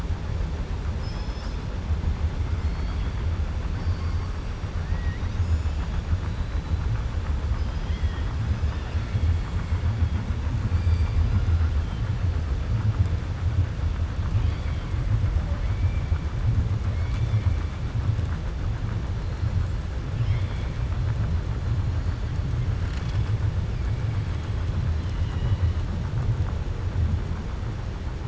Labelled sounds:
20.1	20.7	killer whale, 2.0 to 5.4 kHz
24.9	25.7	killer whale, 0.95 to 5.6 kHz

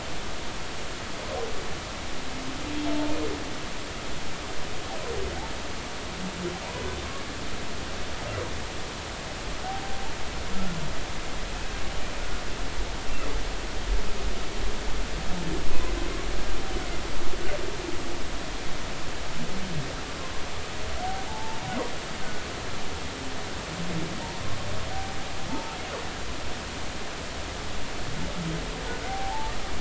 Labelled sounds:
9.6	10.1	humpback whale, 0.80 to 0.83 kHz
11.5	11.8	humpback whale, 2.5 to 2.7 kHz
21.3	21.6	humpback whale, 0.83 to 0.96 kHz
25.5	25.7	humpback whale, 0.83 to 0.93 kHz
29.1	29.5	humpback whale, 0.80 to 0.96 kHz

